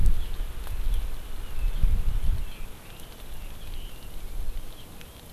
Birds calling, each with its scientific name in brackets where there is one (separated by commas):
Red-billed Leiothrix (Leiothrix lutea)